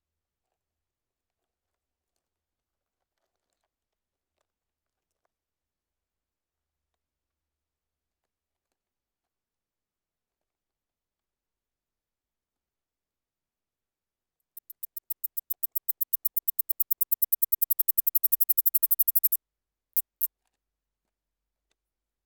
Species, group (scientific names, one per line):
Platystolus martinezii
Orthoptera